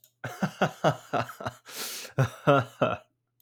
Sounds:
Laughter